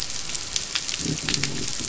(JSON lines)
{"label": "biophony", "recorder": "SoundTrap 500"}